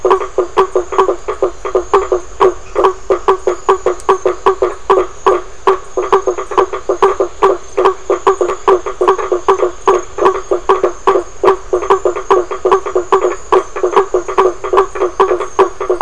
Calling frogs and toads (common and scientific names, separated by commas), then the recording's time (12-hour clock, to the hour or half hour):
blacksmith tree frog (Boana faber)
~7pm